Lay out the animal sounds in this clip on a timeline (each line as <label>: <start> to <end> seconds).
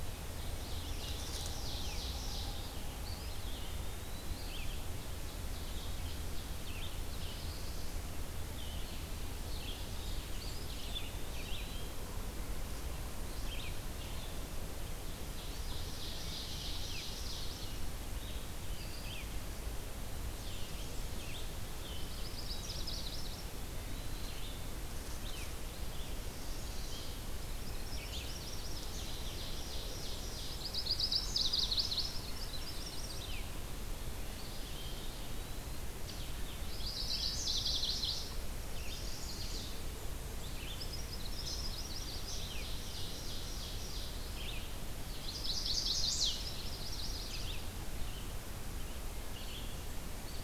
Red-eyed Vireo (Vireo olivaceus): 0.0 to 41.0 seconds
Ovenbird (Seiurus aurocapilla): 0.2 to 2.8 seconds
Eastern Wood-Pewee (Contopus virens): 2.9 to 4.4 seconds
Ovenbird (Seiurus aurocapilla): 4.6 to 7.1 seconds
Black-throated Blue Warbler (Setophaga caerulescens): 7.0 to 7.9 seconds
Eastern Wood-Pewee (Contopus virens): 10.3 to 12.2 seconds
Ovenbird (Seiurus aurocapilla): 15.4 to 17.8 seconds
Blackburnian Warbler (Setophaga fusca): 20.2 to 21.4 seconds
Chestnut-sided Warbler (Setophaga pensylvanica): 22.0 to 23.5 seconds
Eastern Wood-Pewee (Contopus virens): 23.5 to 24.5 seconds
Chestnut-sided Warbler (Setophaga pensylvanica): 25.9 to 27.2 seconds
Chestnut-sided Warbler (Setophaga pensylvanica): 27.6 to 28.9 seconds
Ovenbird (Seiurus aurocapilla): 28.4 to 30.4 seconds
Chestnut-sided Warbler (Setophaga pensylvanica): 30.4 to 33.4 seconds
Golden-crowned Kinglet (Regulus satrapa): 32.4 to 33.4 seconds
Eastern Wood-Pewee (Contopus virens): 34.3 to 36.0 seconds
Chestnut-sided Warbler (Setophaga pensylvanica): 36.5 to 38.3 seconds
Chestnut-sided Warbler (Setophaga pensylvanica): 38.6 to 39.8 seconds
Chestnut-sided Warbler (Setophaga pensylvanica): 40.6 to 42.4 seconds
Red-eyed Vireo (Vireo olivaceus): 42.1 to 50.4 seconds
Ovenbird (Seiurus aurocapilla): 42.4 to 44.1 seconds
Chestnut-sided Warbler (Setophaga pensylvanica): 45.1 to 47.6 seconds